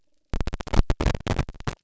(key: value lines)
label: biophony
recorder: SoundTrap 300